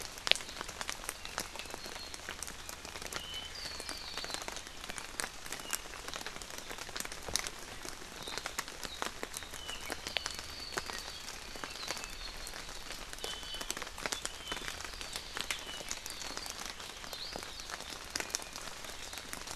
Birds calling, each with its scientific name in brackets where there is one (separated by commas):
Iiwi (Drepanis coccinea), Apapane (Himatione sanguinea)